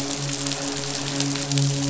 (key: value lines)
label: biophony, midshipman
recorder: SoundTrap 500